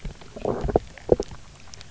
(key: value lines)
label: biophony, low growl
recorder: SoundTrap 300